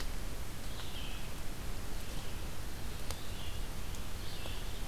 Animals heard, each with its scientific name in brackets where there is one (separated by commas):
Red-eyed Vireo (Vireo olivaceus)